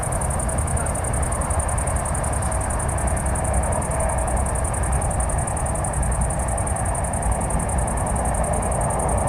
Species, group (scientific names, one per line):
Tettigonia viridissima
Orthoptera